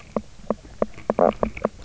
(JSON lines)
{"label": "biophony, knock croak", "recorder": "SoundTrap 300"}